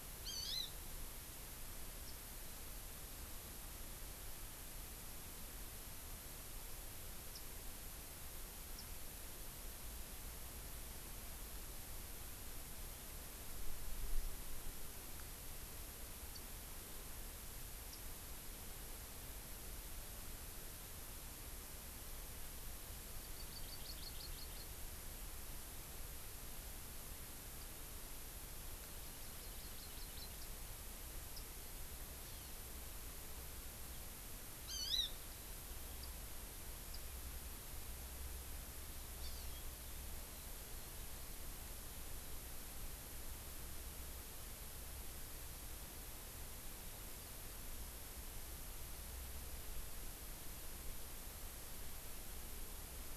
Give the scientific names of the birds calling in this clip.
Chlorodrepanis virens, Zosterops japonicus